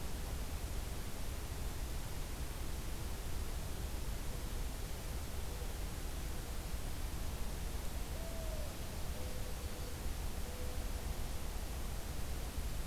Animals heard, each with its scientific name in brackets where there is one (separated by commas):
Mourning Dove (Zenaida macroura)